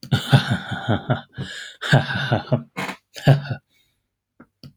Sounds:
Laughter